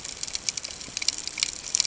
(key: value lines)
label: ambient
recorder: HydroMoth